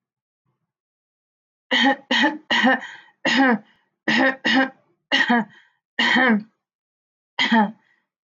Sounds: Cough